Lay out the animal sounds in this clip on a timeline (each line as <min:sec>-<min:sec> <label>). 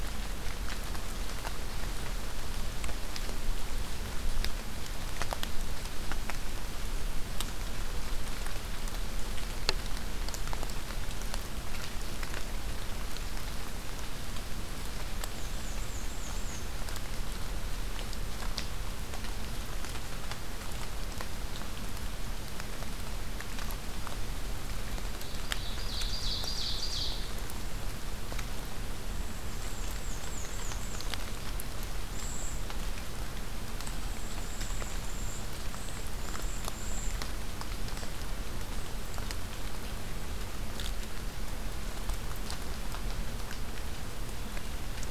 0:15.2-0:16.7 Black-and-white Warbler (Mniotilta varia)
0:25.3-0:27.2 Ovenbird (Seiurus aurocapilla)
0:29.6-0:31.1 Black-and-white Warbler (Mniotilta varia)
0:32.1-0:32.8 Cedar Waxwing (Bombycilla cedrorum)
0:33.6-0:37.2 Cedar Waxwing (Bombycilla cedrorum)